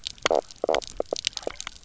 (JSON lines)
{"label": "biophony, knock croak", "recorder": "SoundTrap 300"}